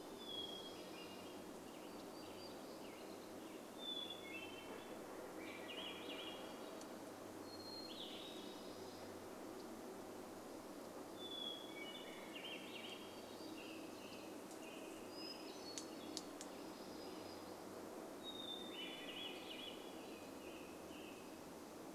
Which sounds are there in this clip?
unidentified sound, warbler song, Hermit Thrush song, vehicle engine, Swainson's Thrush song, Western Tanager song